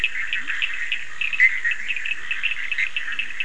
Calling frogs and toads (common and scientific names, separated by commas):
Bischoff's tree frog (Boana bischoffi), Cochran's lime tree frog (Sphaenorhynchus surdus), Leptodactylus latrans